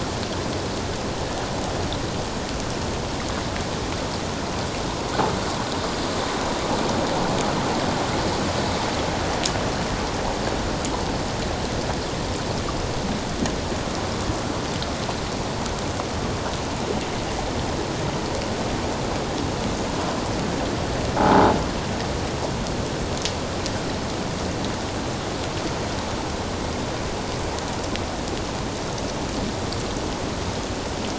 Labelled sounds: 21.2	21.5	croaking sound likely from a nearby submerged object, 0.78 to 1.0 kHz

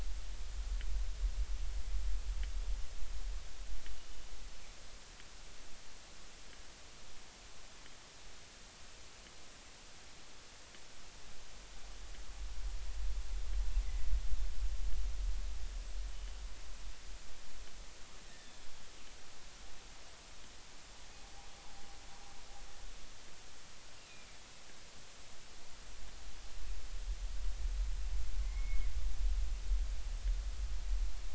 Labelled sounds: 13.8	14.1	killer whale, northern resident, 1.9 to 2.1 kHz
18.2	18.5	killer whale, northern resident, G clan, call N25, 1.7 to 2.0 kHz
28.4	28.9	killer whale, northern resident, G clan, call N23i, 2.0 to 2.3 kHz

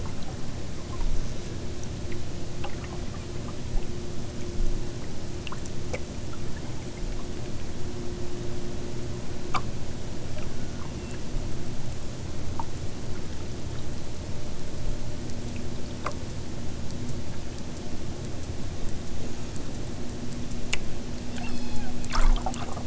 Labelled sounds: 10.3	11.4	killer whale, southern Alaska resident, 1.0 to 6.1 kHz
21.3	22.0	killer whale, southern Alaska resident, 1.1 to 8.0 kHz

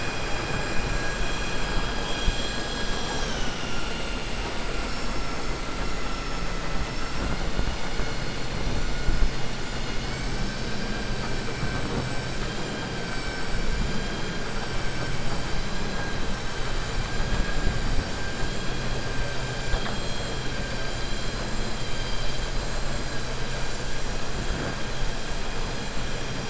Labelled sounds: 4.6	5.6	vessel noise, 4.8 to 7.7 kHz
5.8	6.5	vessel noise, 5.3 to 7.5 kHz

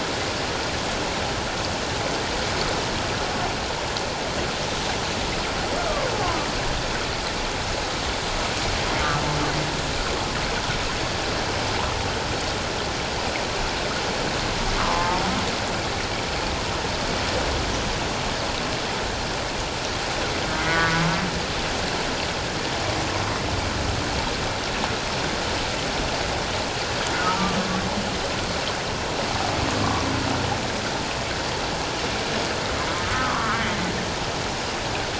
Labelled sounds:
5.8	6.1	humpback whale, 1.0 to 1.4 kHz
14.8	15.2	humpback whale, 0.84 to 1.3 kHz
27.2	27.6	humpback whale, 1.1 to 1.4 kHz
33.1	33.6	humpback whale, 1.0 to 1.5 kHz

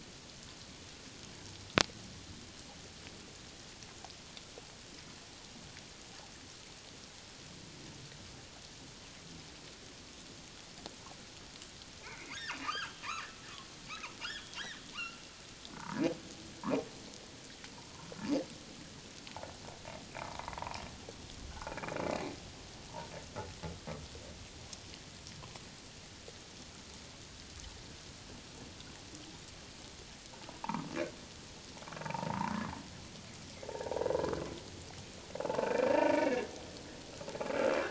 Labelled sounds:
12.0	13.0	humpback whale, 0.84 to 3.4 kHz
14.3	14.6	humpback whale, 3.2 to 3.7 kHz
14.9	16.0	humpback whale, 0.84 to 2.9 kHz
17.7	18.1	humpback whale, 0.88 to 1.1 kHz
20.2	20.6	humpback whale, 0.88 to 1.3 kHz
21.5	21.9	humpback whale, 0.78 to 2.5 kHz
32.0	32.5	humpback whale, 0.78 to 1.1 kHz
33.7	34.1	humpback whale, 0.84 to 1.0 kHz
35.4	36.5	humpback whale, 0.78 to 2.5 kHz

